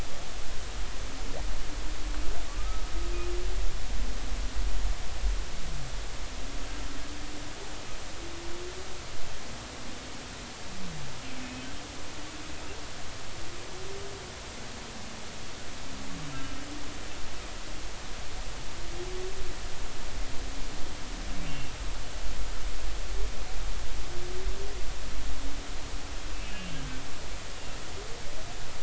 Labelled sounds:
2.6	2.8	humpback whale, 1.2 to 1.3 kHz
16.3	16.6	humpback whale, 1.3 to 1.4 kHz
21.5	21.7	humpback whale, 2.7 to 2.8 kHz
26.3	26.9	humpback whale, 2.5 to 3.1 kHz

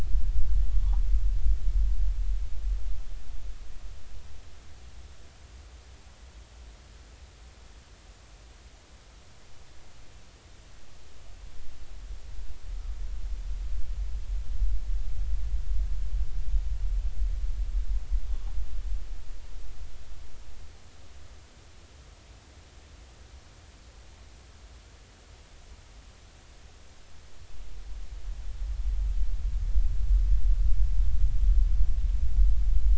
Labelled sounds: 0.7	1.0	humpback whale, 0.80 to 1.2 kHz

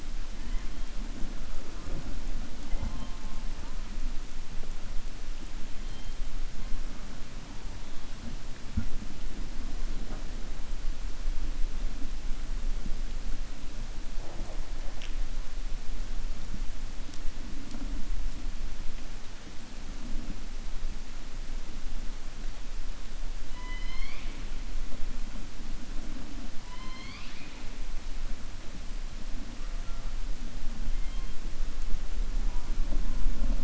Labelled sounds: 23.4	24.4	killer whale, 1.0 to 5.4 kHz
26.6	27.6	killer whale, 1.0 to 5.2 kHz

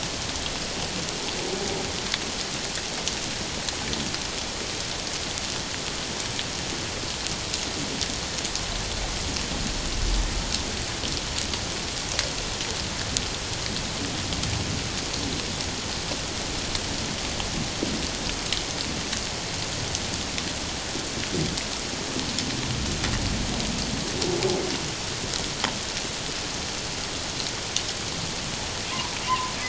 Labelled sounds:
29.3	29.5	humpback whale, 0.94 to 1.1 kHz

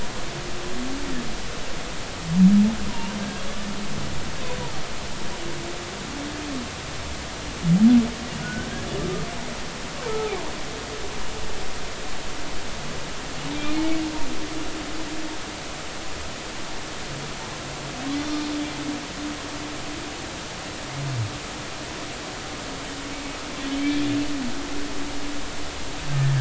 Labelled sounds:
2.9	3.1	humpback whale, 0.86 to 1.0 kHz
8.4	8.7	humpback whale, 1.4 to 1.6 kHz
10.0	10.4	humpback whale, 0.80 to 1.3 kHz
13.7	14.0	humpback whale, 2.1 to 2.3 kHz
18.1	18.5	humpback whale, 3.3 to 3.7 kHz
23.6	23.9	humpback whale, 3.0 to 3.2 kHz

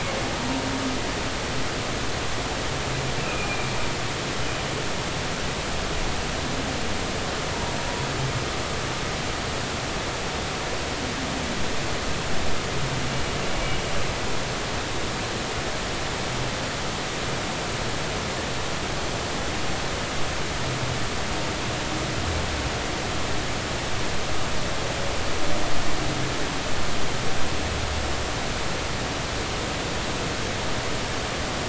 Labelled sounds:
3.2	3.8	humpback whale, 2.3 to 2.7 kHz

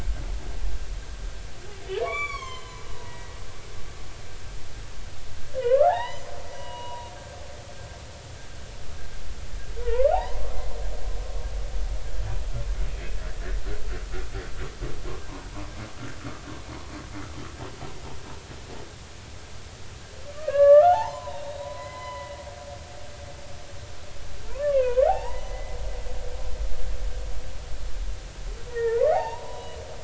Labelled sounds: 1.9	3.4	humpback whale, 0.80 to 7.5 kHz
5.6	6.3	humpback whale, 0.80 to 4.1 kHz
6.5	7.1	humpback whale, 0.86 to 3.0 kHz
9.8	10.4	humpback whale, 0.80 to 4.3 kHz
20.3	22.4	humpback whale, 0.80 to 4.1 kHz
24.5	25.8	humpback whale, 0.80 to 2.9 kHz
28.7	29.8	humpback whale, 0.80 to 3.9 kHz

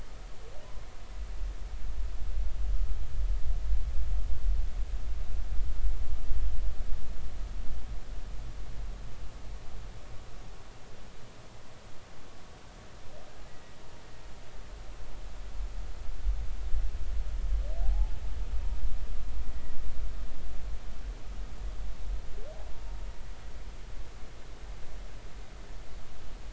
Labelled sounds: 13.5	13.8	humpback whale, 1.9 to 2.0 kHz
17.8	18.1	humpback whale, 0.80 to 0.93 kHz
19.5	19.8	humpback whale, 1.9 to 2.0 kHz

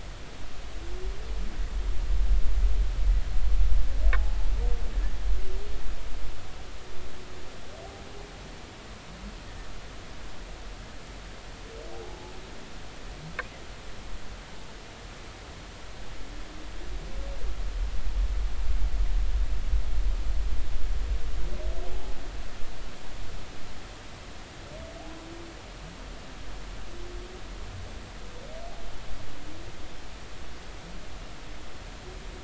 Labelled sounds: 11.9	12.3	humpback whale, 0.80 to 0.90 kHz
21.9	22.2	humpback whale, 0.80 to 0.90 kHz

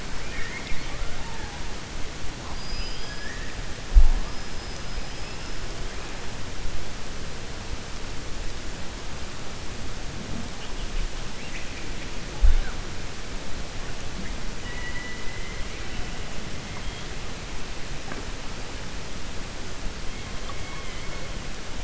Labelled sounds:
0.2	1.0	killer whale, 1.2 to 4.4 kHz
2.5	3.5	killer whale, 1.7 to 5.5 kHz
11.3	11.9	killer whale, 1.8 to 3.1 kHz

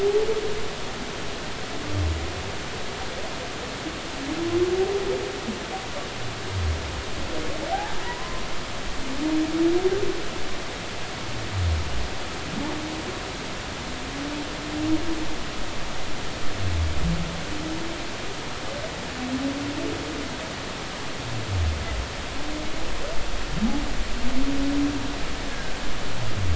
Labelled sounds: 7.7	8.4	humpback whale, 0.80 to 1.1 kHz
25.5	25.7	humpback whale, 1.5 to 1.7 kHz

